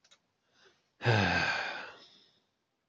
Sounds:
Sigh